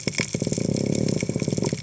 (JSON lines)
{"label": "biophony", "recorder": "HydroMoth"}